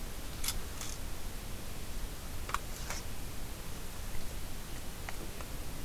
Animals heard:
forest ambience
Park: Marsh-Billings-Rockefeller National Historical Park